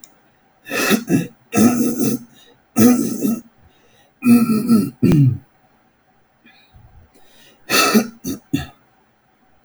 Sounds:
Throat clearing